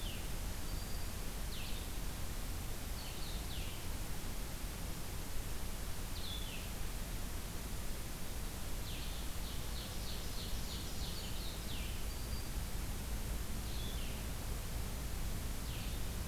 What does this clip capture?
Blue-headed Vireo, Black-throated Green Warbler, Ovenbird, Golden-crowned Kinglet